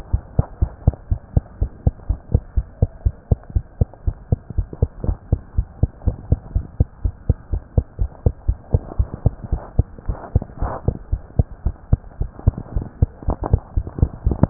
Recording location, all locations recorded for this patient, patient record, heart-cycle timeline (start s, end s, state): pulmonary valve (PV)
aortic valve (AV)+pulmonary valve (PV)+tricuspid valve (TV)+mitral valve (MV)
#Age: Child
#Sex: Female
#Height: 127.0 cm
#Weight: 24.2 kg
#Pregnancy status: False
#Murmur: Absent
#Murmur locations: nan
#Most audible location: nan
#Systolic murmur timing: nan
#Systolic murmur shape: nan
#Systolic murmur grading: nan
#Systolic murmur pitch: nan
#Systolic murmur quality: nan
#Diastolic murmur timing: nan
#Diastolic murmur shape: nan
#Diastolic murmur grading: nan
#Diastolic murmur pitch: nan
#Diastolic murmur quality: nan
#Outcome: Normal
#Campaign: 2015 screening campaign
0.00	0.10	unannotated
0.10	0.24	S1
0.24	0.34	systole
0.34	0.46	S2
0.46	0.58	diastole
0.58	0.72	S1
0.72	0.84	systole
0.84	0.98	S2
0.98	1.10	diastole
1.10	1.22	S1
1.22	1.32	systole
1.32	1.44	S2
1.44	1.58	diastole
1.58	1.72	S1
1.72	1.82	systole
1.82	1.94	S2
1.94	2.06	diastole
2.06	2.20	S1
2.20	2.30	systole
2.30	2.42	S2
2.42	2.54	diastole
2.54	2.66	S1
2.66	2.78	systole
2.78	2.90	S2
2.90	3.02	diastole
3.02	3.14	S1
3.14	3.28	systole
3.28	3.42	S2
3.42	3.54	diastole
3.54	3.66	S1
3.66	3.78	systole
3.78	3.88	S2
3.88	4.04	diastole
4.04	4.16	S1
4.16	4.28	systole
4.28	4.42	S2
4.42	4.56	diastole
4.56	4.68	S1
4.68	4.78	systole
4.78	4.90	S2
4.90	5.02	diastole
5.02	5.16	S1
5.16	5.28	systole
5.28	5.40	S2
5.40	5.56	diastole
5.56	5.66	S1
5.66	5.80	systole
5.80	5.90	S2
5.90	6.04	diastole
6.04	6.18	S1
6.18	6.30	systole
6.30	6.40	S2
6.40	6.54	diastole
6.54	6.68	S1
6.68	6.76	systole
6.76	6.90	S2
6.90	7.04	diastole
7.04	7.14	S1
7.14	7.28	systole
7.28	7.38	S2
7.38	7.52	diastole
7.52	7.62	S1
7.62	7.76	systole
7.76	7.86	S2
7.86	8.00	diastole
8.00	8.10	S1
8.10	8.22	systole
8.22	8.34	S2
8.34	8.46	diastole
8.46	8.58	S1
8.58	8.70	systole
8.70	8.82	S2
8.82	8.98	diastole
8.98	9.12	S1
9.12	9.24	systole
9.24	9.34	S2
9.34	9.50	diastole
9.50	9.62	S1
9.62	9.74	systole
9.74	9.88	S2
9.88	10.05	diastole
10.05	10.18	S1
10.18	10.34	systole
10.34	10.48	S2
10.48	10.60	diastole
10.60	10.74	S1
10.74	10.86	systole
10.86	10.96	S2
10.96	11.10	diastole
11.10	11.22	S1
11.22	11.34	systole
11.34	11.48	S2
11.48	11.64	diastole
11.64	11.74	S1
11.74	11.88	systole
11.88	12.04	S2
12.04	12.20	diastole
12.20	12.30	S1
12.30	12.46	systole
12.46	12.60	S2
12.60	12.74	diastole
12.74	12.86	S1
12.86	12.98	systole
12.98	13.12	S2
13.12	13.26	diastole
13.26	13.38	S1
13.38	13.48	systole
13.48	13.60	S2
13.60	13.74	diastole
13.74	13.87	S1
13.87	14.50	unannotated